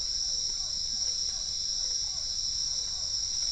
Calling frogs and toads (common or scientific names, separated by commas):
Physalaemus cuvieri